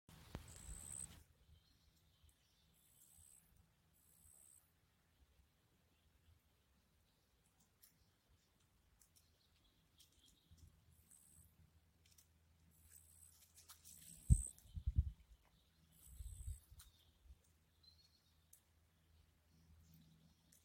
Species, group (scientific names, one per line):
Pteronemobius heydenii
Orthoptera